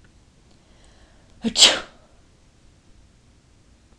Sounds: Sneeze